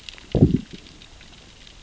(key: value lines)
label: biophony, growl
recorder: SoundTrap 600 or HydroMoth